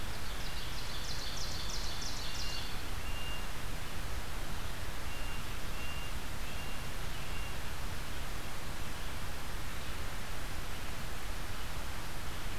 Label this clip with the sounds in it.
Ovenbird, unidentified call